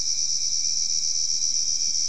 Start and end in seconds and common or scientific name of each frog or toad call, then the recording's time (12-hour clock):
none
10:30pm